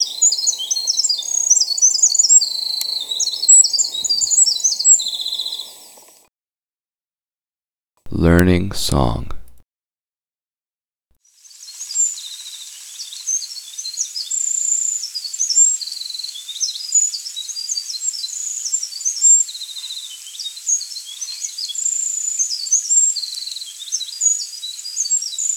Is there a woman speaking?
no